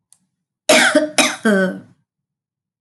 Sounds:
Cough